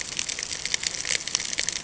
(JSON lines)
{"label": "ambient", "recorder": "HydroMoth"}